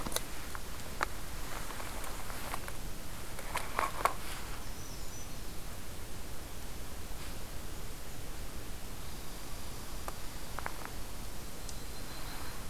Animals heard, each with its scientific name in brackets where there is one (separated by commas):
Yellow-rumped Warbler (Setophaga coronata), Brown Creeper (Certhia americana)